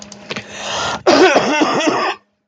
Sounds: Cough